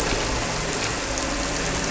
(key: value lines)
label: anthrophony, boat engine
recorder: SoundTrap 300